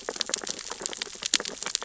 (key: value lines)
label: biophony, sea urchins (Echinidae)
recorder: SoundTrap 600 or HydroMoth